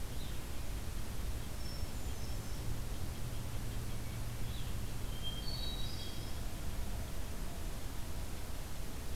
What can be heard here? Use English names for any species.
Hermit Thrush